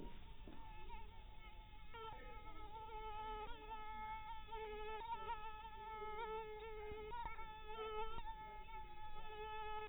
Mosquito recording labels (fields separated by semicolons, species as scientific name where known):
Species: mosquito; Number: one; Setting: cup